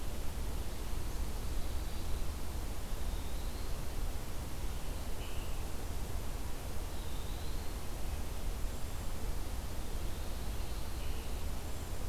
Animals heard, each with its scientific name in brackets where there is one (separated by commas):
Scarlet Tanager (Piranga olivacea), Eastern Wood-Pewee (Contopus virens)